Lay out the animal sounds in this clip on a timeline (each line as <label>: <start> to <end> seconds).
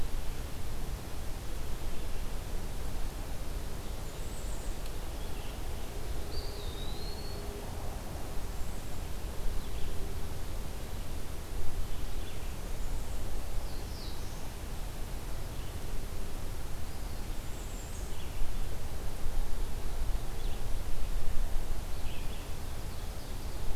Bay-breasted Warbler (Setophaga castanea): 3.9 to 4.8 seconds
Eastern Wood-Pewee (Contopus virens): 6.1 to 7.6 seconds
Black-throated Blue Warbler (Setophaga caerulescens): 13.4 to 14.6 seconds
Red-eyed Vireo (Vireo olivaceus): 15.3 to 22.5 seconds
Bay-breasted Warbler (Setophaga castanea): 17.2 to 18.2 seconds
Ovenbird (Seiurus aurocapilla): 22.3 to 23.8 seconds